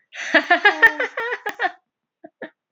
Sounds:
Laughter